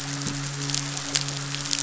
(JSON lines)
{"label": "biophony, midshipman", "recorder": "SoundTrap 500"}